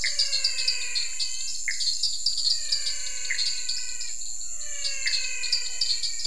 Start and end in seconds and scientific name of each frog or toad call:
0.0	5.3	Pithecopus azureus
0.0	6.2	Dendropsophus nanus
0.0	6.2	Physalaemus albonotatus